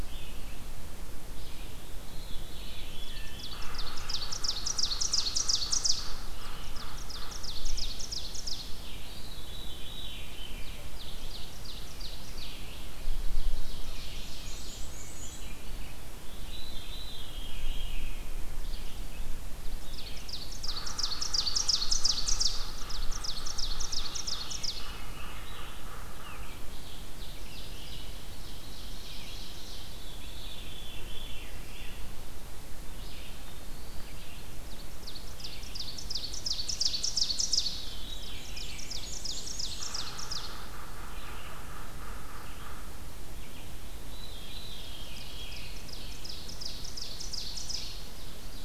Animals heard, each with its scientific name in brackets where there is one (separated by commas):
Ovenbird (Seiurus aurocapilla), Yellow-bellied Sapsucker (Sphyrapicus varius), Veery (Catharus fuscescens), Red-eyed Vireo (Vireo olivaceus), Eastern Wood-Pewee (Contopus virens), Wood Thrush (Hylocichla mustelina), Black-and-white Warbler (Mniotilta varia)